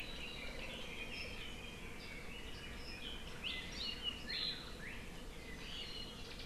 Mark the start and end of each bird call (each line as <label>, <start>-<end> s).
Red-billed Leiothrix (Leiothrix lutea), 0.1-3.2 s
Apapane (Himatione sanguinea), 5.6-6.2 s